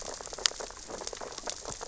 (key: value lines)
label: biophony, sea urchins (Echinidae)
recorder: SoundTrap 600 or HydroMoth